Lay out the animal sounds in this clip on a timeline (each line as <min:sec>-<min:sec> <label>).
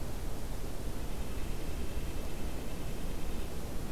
0:00.9-0:03.9 Red-breasted Nuthatch (Sitta canadensis)